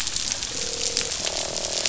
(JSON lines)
{"label": "biophony, croak", "recorder": "SoundTrap 500"}